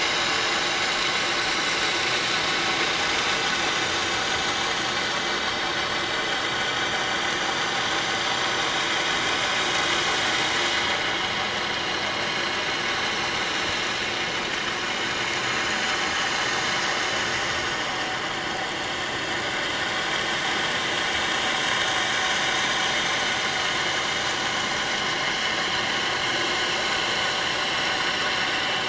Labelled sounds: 13.4	13.7	vessel noise, 5.9 to 6.1 kHz
24.2	25.6	vessel noise, 5.4 to 5.6 kHz

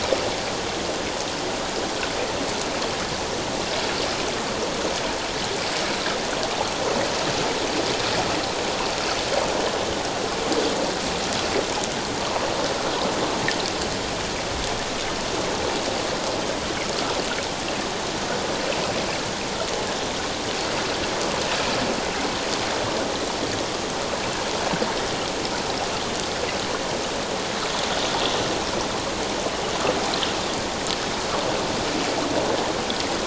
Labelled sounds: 12.2	12.5	water noise, 0.91 to 1.2 kHz

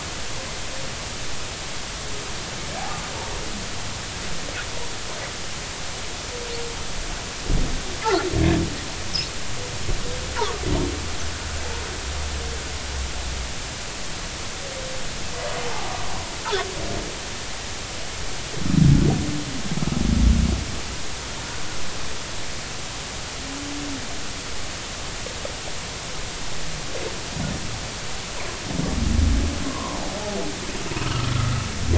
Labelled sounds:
29.7	30.0	humpback whale, 0.93 to 1.2 kHz
31.0	31.5	humpback whale, 1.2 to 1.4 kHz

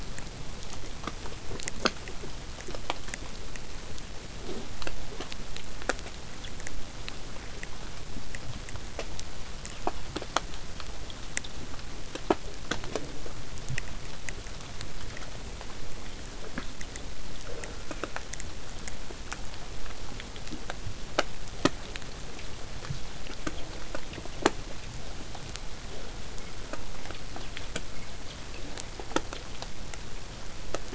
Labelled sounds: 17.4	18.3	killer whale, southern resident, J pod, call S04, 0.23 to 2.8 kHz

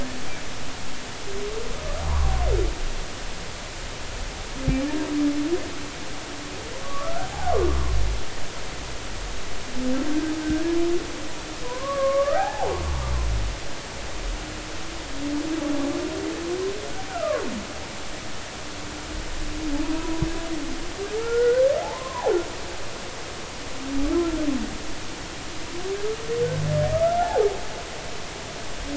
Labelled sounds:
2.0	2.3	humpback whale, 0.80 to 1.2 kHz
6.8	7.5	humpback whale, 0.80 to 1.6 kHz
10.4	10.8	humpback whale, 1.5 to 1.7 kHz
11.6	12.8	humpback whale, 0.80 to 1.8 kHz
17.1	17.5	humpback whale, 1.0 to 1.6 kHz
20.0	20.3	humpback whale, 0.90 to 1.0 kHz
21.2	22.3	humpback whale, 0.80 to 1.6 kHz
27.2	27.5	humpback whale, 0.80 to 0.93 kHz

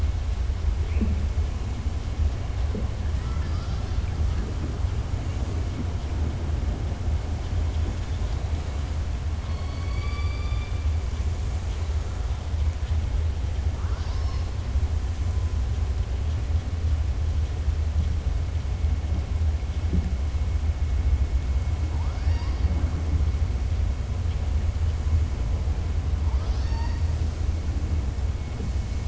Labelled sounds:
9.4	10.8	killer whale, southern resident, 1.1 to 4.8 kHz
26.3	27.0	killer whale, southern resident, 0.91 to 6.4 kHz

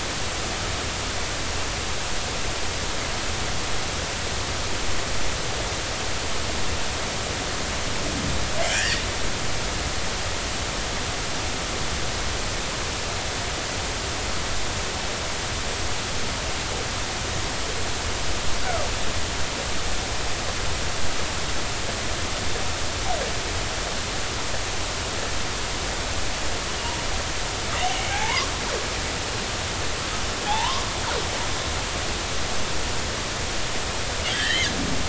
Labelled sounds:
8.6	9.0	killer whale, northern resident, G clan, 1.5 to 3.4 kHz
27.8	28.5	killer whale, northern resident, G clan, 0.80 to 3.1 kHz
30.5	30.9	killer whale, northern resident, G clan, 0.80 to 1.3 kHz
34.3	34.7	killer whale, northern resident, G clan, 1.5 to 3.5 kHz

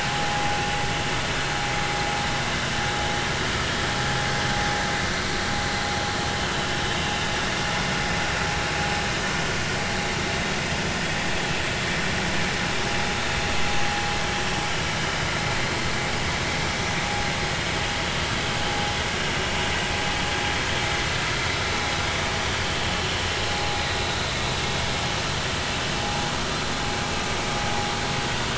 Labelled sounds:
6.9	7.2	vessel noise, 2.6 to 2.9 kHz

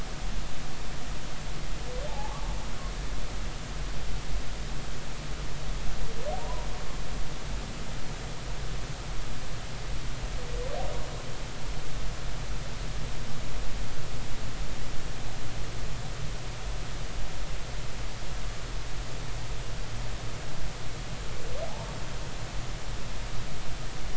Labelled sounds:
2.1	2.4	humpback whale, 0.80 to 1.2 kHz
6.4	6.7	humpback whale, 0.90 to 1.1 kHz

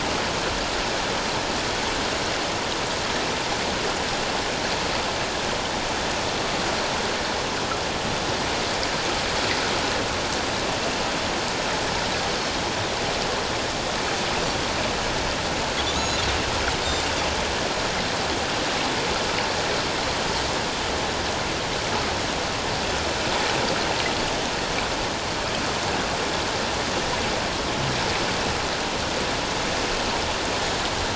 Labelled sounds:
15.9	16.2	Pacific white-sided dolphin, 3.4 to 6.8 kHz

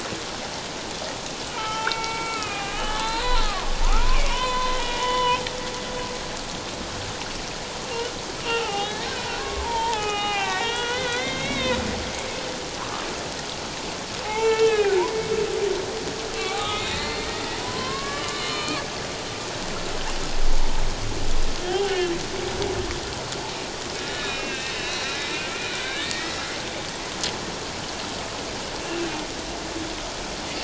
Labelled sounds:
1.5	5.4	humpback whale, 0.78 to 4.2 kHz
7.9	11.8	humpback whale, 0.78 to 4.2 kHz
12.8	13.0	humpback whale, 0.97 to 1.4 kHz
14.2	15.0	humpback whale, 0.78 to 2.8 kHz
16.3	18.8	humpback whale, 0.94 to 4.4 kHz
21.7	22.1	humpback whale, 0.78 to 3.0 kHz
24.0	25.4	humpback whale, 1.5 to 3.9 kHz
25.7	26.4	humpback whale, 1.4 to 3.8 kHz

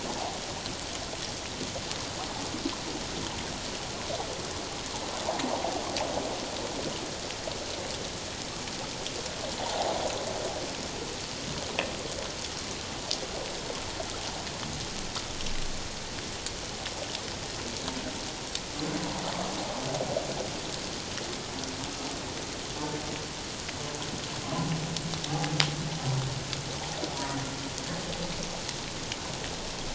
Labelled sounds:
9.6	9.9	water noise, 0.78 to 1.0 kHz
24.4	25.6	humpback whale, 0.78 to 1.2 kHz

